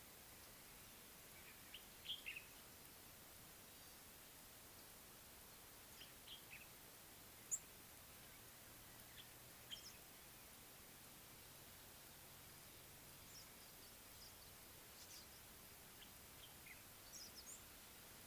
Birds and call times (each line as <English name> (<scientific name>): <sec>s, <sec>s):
Common Bulbul (Pycnonotus barbatus): 2.0s
Red-cheeked Cordonbleu (Uraeginthus bengalus): 7.5s